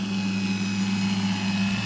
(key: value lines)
label: anthrophony, boat engine
recorder: SoundTrap 500